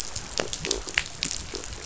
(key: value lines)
label: biophony
recorder: SoundTrap 500